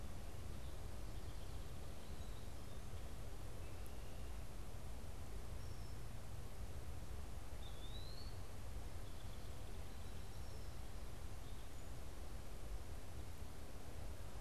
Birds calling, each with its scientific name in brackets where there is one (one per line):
Eastern Wood-Pewee (Contopus virens)